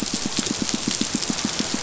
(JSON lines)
{"label": "biophony, pulse", "recorder": "SoundTrap 500"}